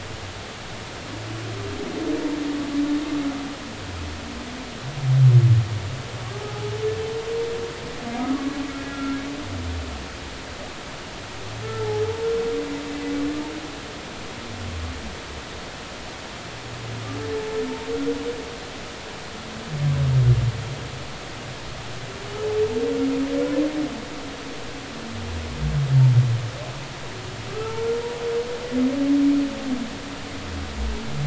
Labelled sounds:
8.9	9.2	humpback whale, 1.3 to 1.4 kHz
27.5	27.8	humpback whale, 1.1 to 1.4 kHz

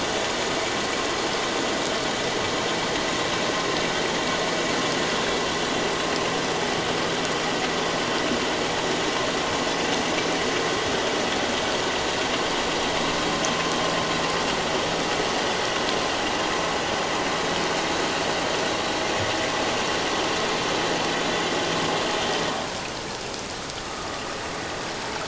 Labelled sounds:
23.8	24.1	vessel noise, 1.1 to 1.3 kHz

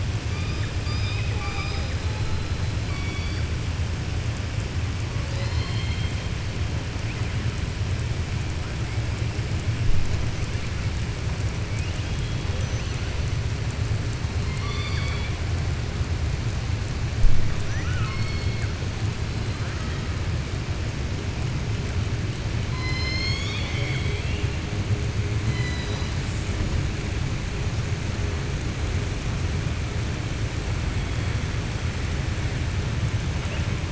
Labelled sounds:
0.7	1.9	killer whale, southern resident, 0.53 to 5.1 kHz
2.8	3.4	killer whale, southern resident, 2.2 to 4.7 kHz
14.4	15.3	killer whale, southern resident, 0.96 to 4.7 kHz
17.6	18.7	killer whale, southern resident, 1.0 to 5.4 kHz
22.7	24.5	killer whale, southern resident, 0.83 to 7.0 kHz
25.4	26.1	killer whale, southern resident, 1.0 to 7.1 kHz

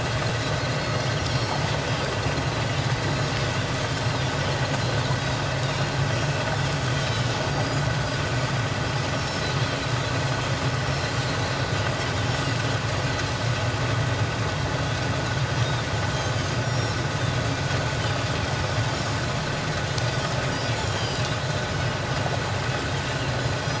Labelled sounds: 0.8	1.6	Pacific white-sided dolphin, 2.1 to 4.4 kHz
3.0	3.3	Pacific white-sided dolphin, 4.0 to 4.2 kHz
6.9	7.8	Pacific white-sided dolphin, 2.9 to 5.4 kHz
9.1	9.5	Pacific white-sided dolphin, 5.2 to 5.7 kHz
10.9	11.7	Pacific white-sided dolphin, 4.0 to 4.7 kHz
16.6	17.0	Pacific white-sided dolphin, 5.3 to 7.1 kHz
20.8	21.2	Pacific white-sided dolphin, 2.8 to 5.0 kHz
21.7	22.0	Pacific white-sided dolphin, 5.0 to 5.2 kHz

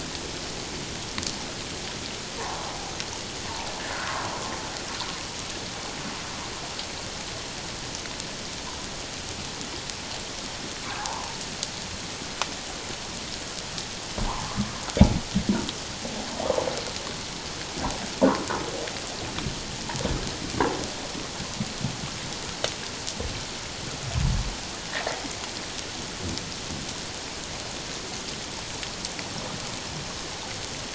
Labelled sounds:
2.4	2.6	humpback whale, 0.78 to 1.2 kHz
11.0	11.3	humpback whale, 0.78 to 1.2 kHz
14.2	14.5	humpback whale, 0.78 to 1.2 kHz

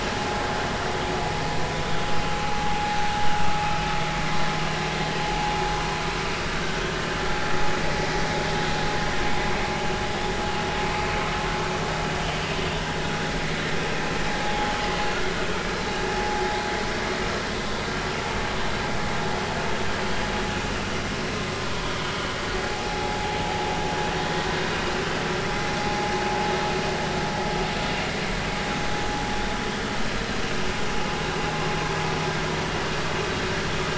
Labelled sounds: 9.7	10.0	vessel noise, 2.8 to 2.9 kHz
10.9	11.2	vessel noise, 2.5 to 2.6 kHz
14.4	14.7	vessel noise, 0.80 to 0.90 kHz
22.6	23.2	vessel noise, 0.80 to 0.96 kHz

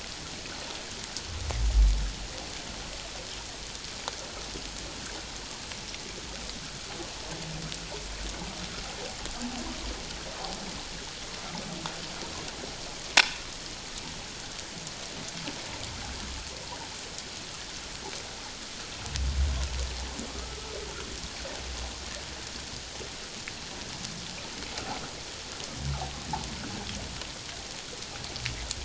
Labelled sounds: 13.2	13.4	humpback whale, 2.2 to 2.6 kHz
20.3	20.6	humpback whale, 1.1 to 1.3 kHz

